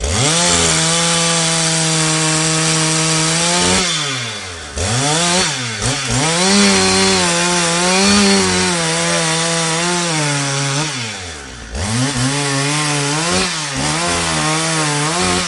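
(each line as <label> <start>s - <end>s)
A chainsaw makes a loud, metallic, repetitive, and fluctuating noise. 0.0s - 15.5s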